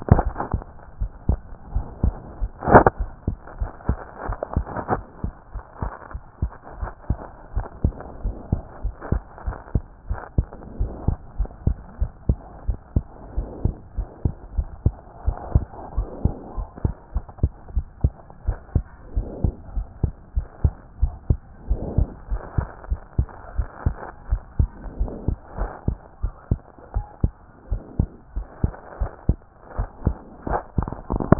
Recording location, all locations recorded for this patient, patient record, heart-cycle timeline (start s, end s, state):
pulmonary valve (PV)
aortic valve (AV)+pulmonary valve (PV)+tricuspid valve (TV)+mitral valve (MV)
#Age: Child
#Sex: Male
#Height: 103.0 cm
#Weight: 18.8 kg
#Pregnancy status: False
#Murmur: Absent
#Murmur locations: nan
#Most audible location: nan
#Systolic murmur timing: nan
#Systolic murmur shape: nan
#Systolic murmur grading: nan
#Systolic murmur pitch: nan
#Systolic murmur quality: nan
#Diastolic murmur timing: nan
#Diastolic murmur shape: nan
#Diastolic murmur grading: nan
#Diastolic murmur pitch: nan
#Diastolic murmur quality: nan
#Outcome: Abnormal
#Campaign: 2014 screening campaign
0.00	7.54	unannotated
7.54	7.66	S1
7.66	7.82	systole
7.82	7.94	S2
7.94	8.24	diastole
8.24	8.36	S1
8.36	8.50	systole
8.50	8.62	S2
8.62	8.84	diastole
8.84	8.94	S1
8.94	9.10	systole
9.10	9.22	S2
9.22	9.46	diastole
9.46	9.56	S1
9.56	9.74	systole
9.74	9.84	S2
9.84	10.08	diastole
10.08	10.20	S1
10.20	10.36	systole
10.36	10.46	S2
10.46	10.78	diastole
10.78	10.92	S1
10.92	11.06	systole
11.06	11.16	S2
11.16	11.38	diastole
11.38	11.50	S1
11.50	11.66	systole
11.66	11.76	S2
11.76	12.00	diastole
12.00	12.10	S1
12.10	12.28	systole
12.28	12.38	S2
12.38	12.66	diastole
12.66	12.78	S1
12.78	12.94	systole
12.94	13.04	S2
13.04	13.36	diastole
13.36	13.48	S1
13.48	13.64	systole
13.64	13.74	S2
13.74	13.98	diastole
13.98	14.08	S1
14.08	14.24	systole
14.24	14.34	S2
14.34	14.56	diastole
14.56	14.68	S1
14.68	14.84	systole
14.84	14.94	S2
14.94	15.26	diastole
15.26	15.38	S1
15.38	15.54	systole
15.54	15.66	S2
15.66	15.96	diastole
15.96	16.08	S1
16.08	16.24	systole
16.24	16.34	S2
16.34	16.56	diastole
16.56	16.68	S1
16.68	16.84	systole
16.84	16.94	S2
16.94	17.14	diastole
17.14	17.24	S1
17.24	17.42	systole
17.42	17.52	S2
17.52	17.74	diastole
17.74	17.86	S1
17.86	18.02	systole
18.02	18.12	S2
18.12	18.46	diastole
18.46	18.58	S1
18.58	18.74	systole
18.74	18.84	S2
18.84	19.16	diastole
19.16	19.28	S1
19.28	19.42	systole
19.42	19.54	S2
19.54	19.76	diastole
19.76	19.86	S1
19.86	20.02	systole
20.02	20.12	S2
20.12	20.36	diastole
20.36	20.46	S1
20.46	20.62	systole
20.62	20.74	S2
20.74	21.00	diastole
21.00	21.14	S1
21.14	21.28	systole
21.28	21.38	S2
21.38	21.68	diastole
21.68	21.80	S1
21.80	21.96	systole
21.96	22.08	S2
22.08	22.30	diastole
22.30	22.42	S1
22.42	22.56	systole
22.56	22.68	S2
22.68	22.90	diastole
22.90	23.00	S1
23.00	23.18	systole
23.18	23.28	S2
23.28	23.56	diastole
23.56	23.68	S1
23.68	23.84	systole
23.84	23.96	S2
23.96	24.30	diastole
24.30	24.42	S1
24.42	24.58	systole
24.58	24.70	S2
24.70	25.00	diastole
25.00	25.12	S1
25.12	25.26	systole
25.26	25.36	S2
25.36	25.58	diastole
25.58	25.70	S1
25.70	25.86	systole
25.86	25.98	S2
25.98	26.22	diastole
26.22	26.34	S1
26.34	26.50	systole
26.50	26.60	S2
26.60	26.94	diastole
26.94	27.06	S1
27.06	27.22	systole
27.22	27.32	S2
27.32	27.70	diastole
27.70	27.82	S1
27.82	27.98	systole
27.98	28.08	S2
28.08	28.36	diastole
28.36	28.46	S1
28.46	28.62	systole
28.62	28.72	S2
28.72	29.00	diastole
29.00	29.10	S1
29.10	29.28	systole
29.28	29.38	S2
29.38	29.78	diastole
29.78	31.39	unannotated